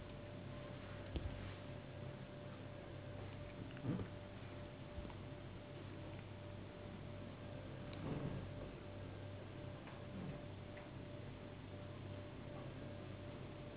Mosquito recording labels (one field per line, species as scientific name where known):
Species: Anopheles gambiae s.s.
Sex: female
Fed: unfed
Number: one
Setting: insect culture